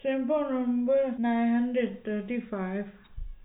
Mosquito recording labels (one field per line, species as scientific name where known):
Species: no mosquito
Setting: cup